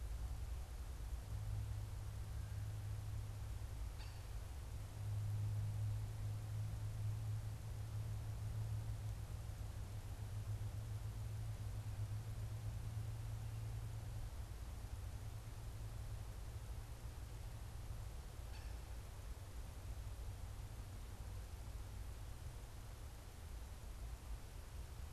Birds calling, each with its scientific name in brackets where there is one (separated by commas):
Cooper's Hawk (Accipiter cooperii)